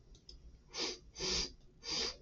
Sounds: Sniff